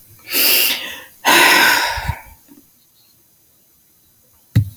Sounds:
Sigh